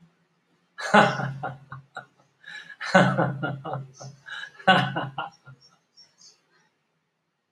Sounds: Laughter